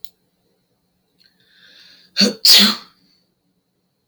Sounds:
Sneeze